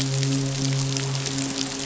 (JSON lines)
{"label": "biophony, midshipman", "recorder": "SoundTrap 500"}